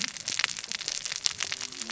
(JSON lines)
{"label": "biophony, cascading saw", "recorder": "SoundTrap 600 or HydroMoth"}